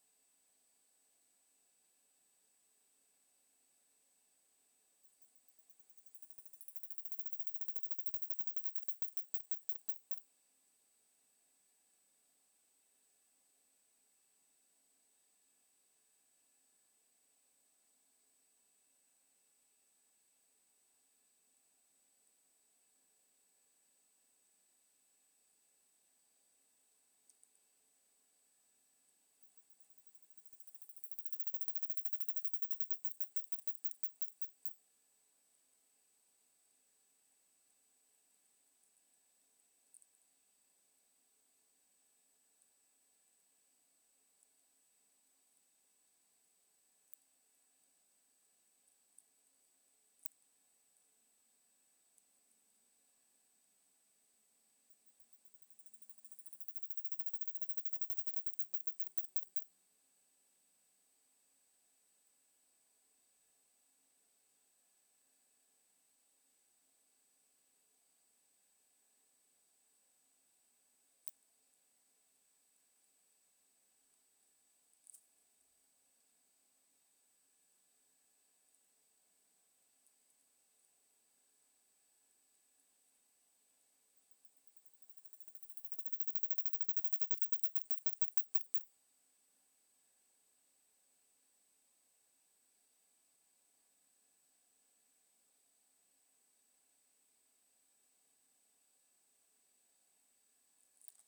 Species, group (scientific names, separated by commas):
Isophya rectipennis, Orthoptera